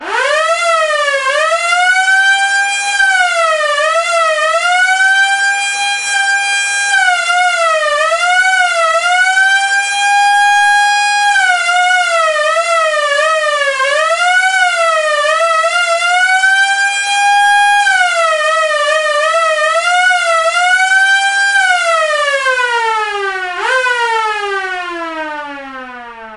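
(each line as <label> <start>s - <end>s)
A police siren blares loudly in a repeating, fading pattern. 0.0s - 26.4s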